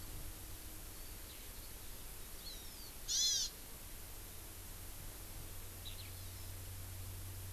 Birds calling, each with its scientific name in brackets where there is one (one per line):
Eurasian Skylark (Alauda arvensis)
Hawaii Amakihi (Chlorodrepanis virens)